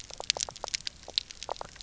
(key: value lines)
label: biophony
recorder: SoundTrap 300